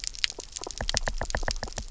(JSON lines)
{"label": "biophony, knock", "recorder": "SoundTrap 300"}